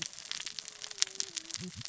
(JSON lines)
{"label": "biophony, cascading saw", "recorder": "SoundTrap 600 or HydroMoth"}